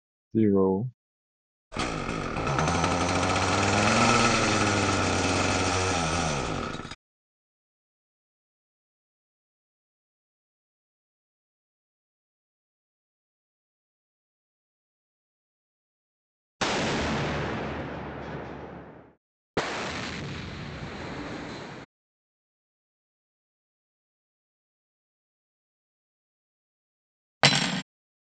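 At 0.34 seconds, someone says "Zero." After that, at 1.71 seconds, an engine starts. Next, at 16.59 seconds, you can hear an explosion. Finally, at 27.4 seconds, there is the sound of cutlery.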